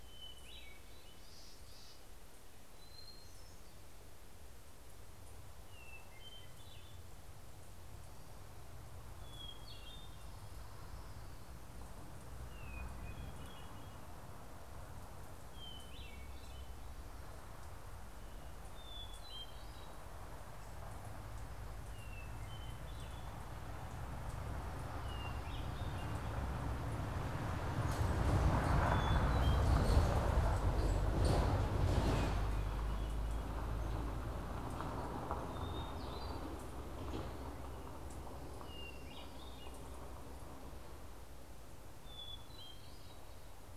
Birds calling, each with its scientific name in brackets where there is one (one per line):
Chestnut-backed Chickadee (Poecile rufescens)
Hermit Thrush (Catharus guttatus)